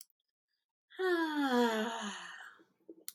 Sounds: Sigh